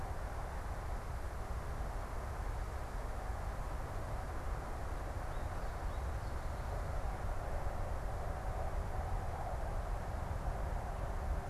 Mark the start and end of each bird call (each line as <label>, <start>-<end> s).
American Goldfinch (Spinus tristis), 5.0-7.1 s